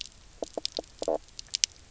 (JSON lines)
{"label": "biophony, knock croak", "recorder": "SoundTrap 300"}